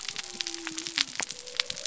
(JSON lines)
{"label": "biophony", "recorder": "SoundTrap 300"}